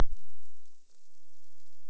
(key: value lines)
label: biophony
recorder: SoundTrap 300